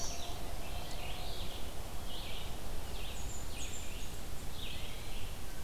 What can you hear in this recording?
Red-eyed Vireo, Blackburnian Warbler